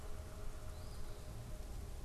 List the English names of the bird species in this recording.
unidentified bird, Eastern Phoebe